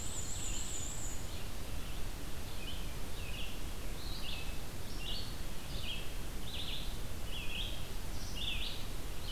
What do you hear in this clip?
Black-and-white Warbler, Red-eyed Vireo